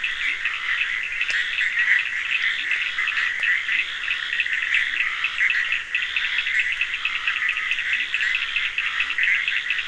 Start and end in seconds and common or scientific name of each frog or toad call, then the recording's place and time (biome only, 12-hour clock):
0.0	9.8	Bischoff's tree frog
0.0	9.8	Scinax perereca
0.0	9.8	Cochran's lime tree frog
0.2	0.5	Leptodactylus latrans
2.4	5.3	Leptodactylus latrans
7.8	9.6	Leptodactylus latrans
Atlantic Forest, 2:45am